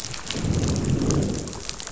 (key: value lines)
label: biophony, growl
recorder: SoundTrap 500